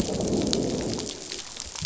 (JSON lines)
{"label": "biophony, growl", "recorder": "SoundTrap 500"}